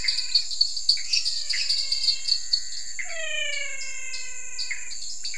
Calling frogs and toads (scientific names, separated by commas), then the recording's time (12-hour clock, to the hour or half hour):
Dendropsophus minutus, Dendropsophus nanus, Physalaemus albonotatus, Pithecopus azureus
8:30pm